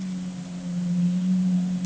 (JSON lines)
{"label": "anthrophony, boat engine", "recorder": "HydroMoth"}